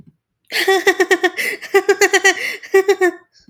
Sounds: Laughter